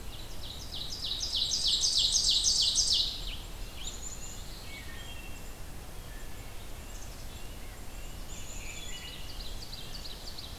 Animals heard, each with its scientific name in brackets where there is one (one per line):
Black-and-white Warbler (Mniotilta varia)
Black-capped Chickadee (Poecile atricapillus)
Rose-breasted Grosbeak (Pheucticus ludovicianus)
Wood Thrush (Hylocichla mustelina)
Ovenbird (Seiurus aurocapilla)